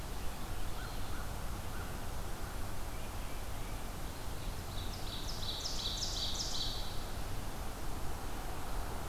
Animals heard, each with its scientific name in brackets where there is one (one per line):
American Crow (Corvus brachyrhynchos)
Tufted Titmouse (Baeolophus bicolor)
Ovenbird (Seiurus aurocapilla)